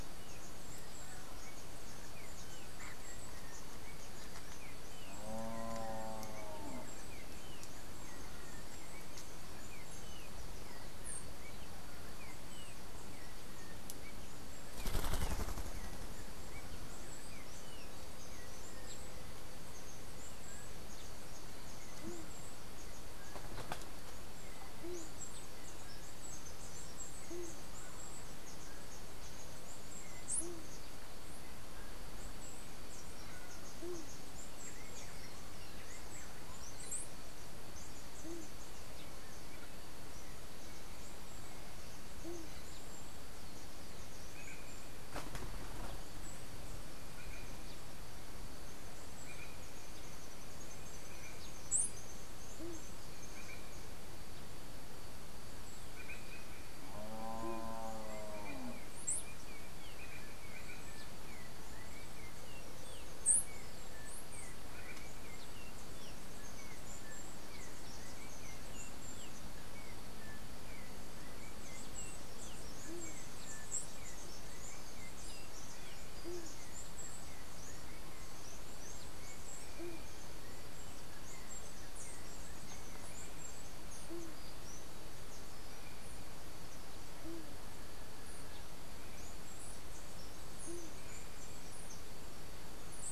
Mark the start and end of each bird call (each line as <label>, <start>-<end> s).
Yellow-backed Oriole (Icterus chrysater), 0.0-19.6 s
White-tipped Dove (Leptotila verreauxi), 22.0-42.6 s
Chestnut-capped Brushfinch (Arremon brunneinucha), 24.6-37.2 s
Green Jay (Cyanocorax yncas), 44.2-51.4 s
unidentified bird, 48.6-53.9 s
White-tipped Dove (Leptotila verreauxi), 52.6-52.8 s
Green Jay (Cyanocorax yncas), 53.3-60.9 s
unidentified bird, 58.7-63.8 s
Yellow-backed Oriole (Icterus chrysater), 61.2-78.6 s
White-tipped Dove (Leptotila verreauxi), 72.8-93.1 s
unidentified bird, 83.7-93.1 s